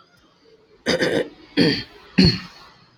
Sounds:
Throat clearing